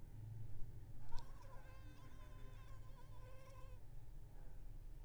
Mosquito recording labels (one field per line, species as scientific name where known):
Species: Anopheles arabiensis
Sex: female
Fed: unfed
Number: one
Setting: cup